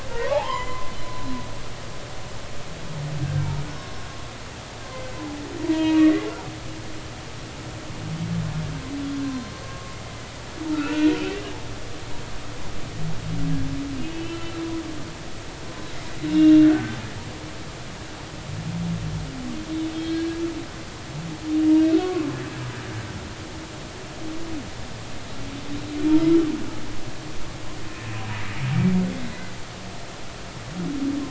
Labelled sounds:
0.1	0.9	humpback whale, 0.80 to 7.2 kHz
3.2	3.5	humpback whale, 1.5 to 1.7 kHz
5.6	6.3	humpback whale, 0.90 to 2.9 kHz
9.2	9.9	humpback whale, 0.96 to 1.1 kHz
10.7	11.1	humpback whale, 1.2 to 2.8 kHz
14.0	14.5	humpback whale, 2.8 to 3.1 kHz
16.2	17.0	humpback whale, 1.4 to 4.0 kHz
19.9	21.3	humpback whale, 1.6 to 4.4 kHz
22.0	22.3	humpback whale, 1.1 to 1.2 kHz

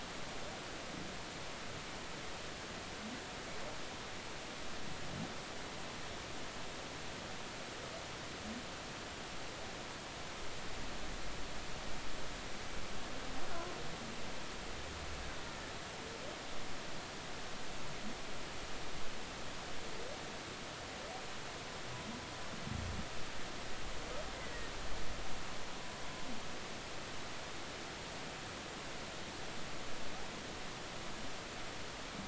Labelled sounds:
24.4	24.7	humpback whale, 1.8 to 2.1 kHz

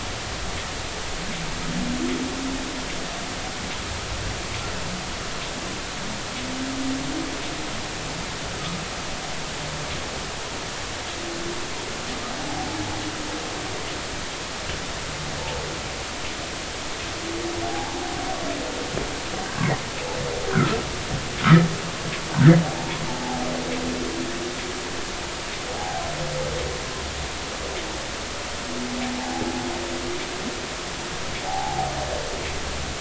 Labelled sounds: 17.6	18.0	humpback whale, 0.80 to 0.93 kHz
20.5	20.8	humpback whale, 1.2 to 1.6 kHz
25.7	26.0	humpback whale, 0.80 to 0.86 kHz
29.2	29.4	humpback whale, 0.80 to 0.93 kHz
31.5	31.9	humpback whale, 0.80 to 0.93 kHz

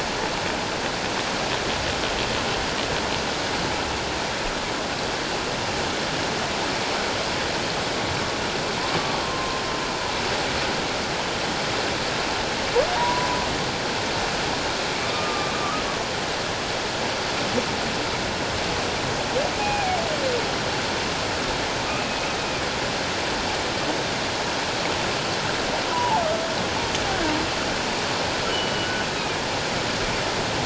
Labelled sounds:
9.2	9.6	humpback whale, 0.97 to 1.1 kHz
12.9	13.4	humpback whale, 0.84 to 1.0 kHz
15.0	15.8	humpback whale, 1.0 to 1.3 kHz
19.6	20.0	humpback whale, 0.78 to 2.6 kHz
21.9	22.3	humpback whale, 2.4 to 2.7 kHz
25.9	26.2	humpback whale, 0.78 to 1.0 kHz
28.5	28.9	humpback whale, 2.9 to 3.1 kHz

